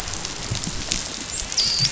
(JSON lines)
{"label": "biophony, dolphin", "recorder": "SoundTrap 500"}